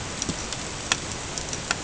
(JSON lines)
{"label": "ambient", "recorder": "HydroMoth"}